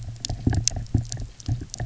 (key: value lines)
label: biophony
recorder: SoundTrap 300